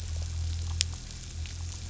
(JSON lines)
{"label": "anthrophony, boat engine", "recorder": "SoundTrap 500"}